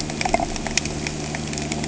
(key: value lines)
label: anthrophony, boat engine
recorder: HydroMoth